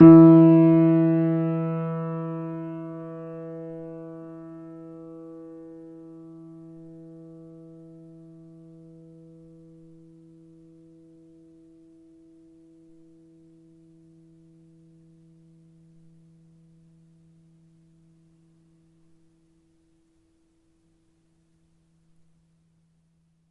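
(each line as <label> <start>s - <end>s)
A single medium-pitched piano tone fades away. 0.0s - 23.4s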